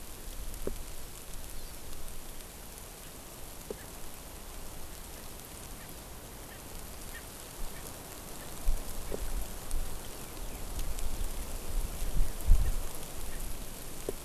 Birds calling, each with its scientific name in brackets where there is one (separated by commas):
Erckel's Francolin (Pternistis erckelii)